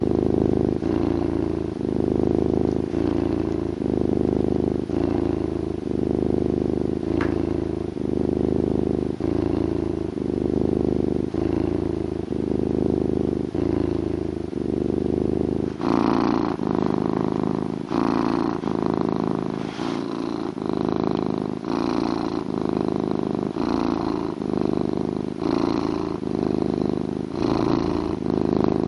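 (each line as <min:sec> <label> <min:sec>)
0:00.1 An animal is sleeping and snoring loudly. 0:15.7
0:15.9 Heavy breathing and snoring. 0:28.8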